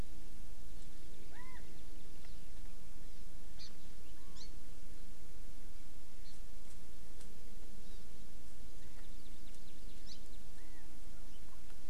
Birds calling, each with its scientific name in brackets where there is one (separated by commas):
Chinese Hwamei (Garrulax canorus), Hawaii Amakihi (Chlorodrepanis virens)